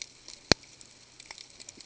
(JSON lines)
{"label": "ambient", "recorder": "HydroMoth"}